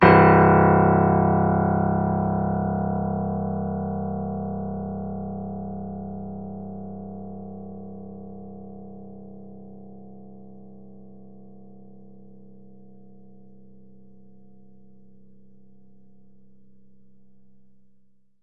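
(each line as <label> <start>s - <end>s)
A low-pitched piano sound slowly fades away. 0.0s - 18.4s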